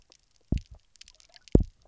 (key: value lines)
label: biophony, double pulse
recorder: SoundTrap 300